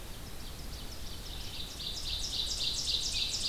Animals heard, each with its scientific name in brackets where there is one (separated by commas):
Ovenbird (Seiurus aurocapilla)